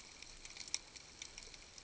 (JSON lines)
{"label": "ambient", "recorder": "HydroMoth"}